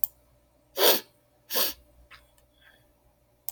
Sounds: Sniff